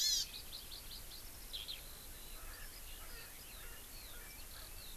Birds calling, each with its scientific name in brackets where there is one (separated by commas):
Eurasian Skylark (Alauda arvensis), Hawaii Amakihi (Chlorodrepanis virens), Erckel's Francolin (Pternistis erckelii)